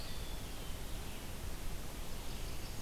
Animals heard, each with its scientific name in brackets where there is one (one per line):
Red-eyed Vireo (Vireo olivaceus)
Eastern Wood-Pewee (Contopus virens)
Blackburnian Warbler (Setophaga fusca)